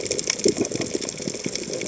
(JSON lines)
{"label": "biophony, chatter", "recorder": "HydroMoth"}